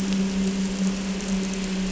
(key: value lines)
label: anthrophony, boat engine
recorder: SoundTrap 300